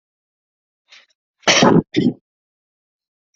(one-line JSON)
{"expert_labels": [{"quality": "ok", "cough_type": "unknown", "dyspnea": false, "wheezing": false, "stridor": false, "choking": false, "congestion": false, "nothing": true, "diagnosis": "COVID-19", "severity": "unknown"}], "age": 25, "gender": "male", "respiratory_condition": false, "fever_muscle_pain": false, "status": "symptomatic"}